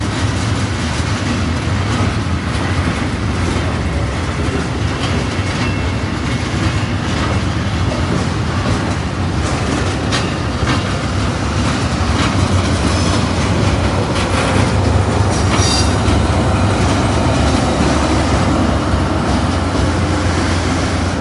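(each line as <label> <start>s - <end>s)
The sound of a station or rail yard blends with the rhythmic clatter of metallic stamping in a mechanical atmosphere. 0.1s - 12.1s
Train passing with creaking metal sounds in the background. 12.2s - 21.0s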